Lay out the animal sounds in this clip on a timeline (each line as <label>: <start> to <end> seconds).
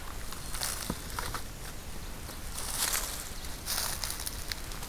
Black-throated Green Warbler (Setophaga virens): 0.3 to 1.1 seconds